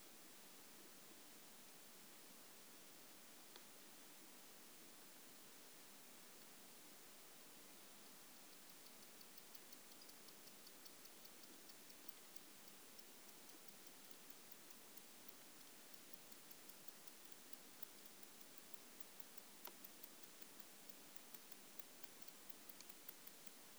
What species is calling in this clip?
Barbitistes fischeri